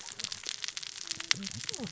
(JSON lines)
{"label": "biophony, cascading saw", "recorder": "SoundTrap 600 or HydroMoth"}